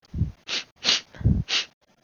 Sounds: Sniff